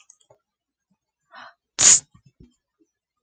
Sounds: Sneeze